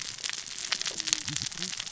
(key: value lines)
label: biophony, cascading saw
recorder: SoundTrap 600 or HydroMoth